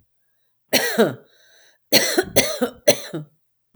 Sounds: Cough